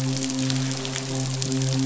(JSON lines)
{"label": "biophony, midshipman", "recorder": "SoundTrap 500"}